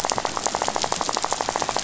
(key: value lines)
label: biophony, rattle
recorder: SoundTrap 500